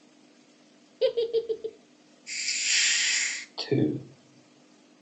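First, someone giggles. Then hissing can be heard. Afterwards, a voice says "Two."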